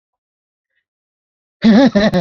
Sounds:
Laughter